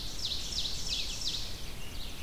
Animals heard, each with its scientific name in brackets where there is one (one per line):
Ovenbird (Seiurus aurocapilla)
Red-eyed Vireo (Vireo olivaceus)